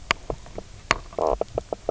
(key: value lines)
label: biophony, knock croak
recorder: SoundTrap 300